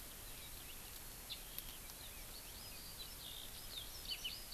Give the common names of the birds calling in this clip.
Eurasian Skylark